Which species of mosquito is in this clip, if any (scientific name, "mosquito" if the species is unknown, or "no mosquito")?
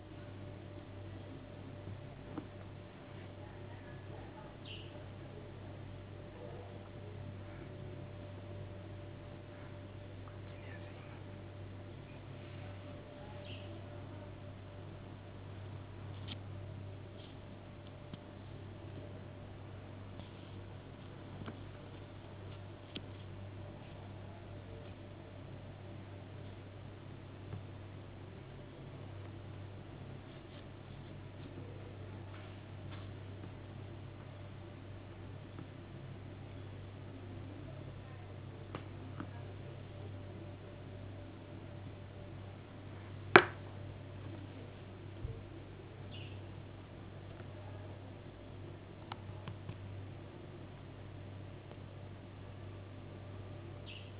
no mosquito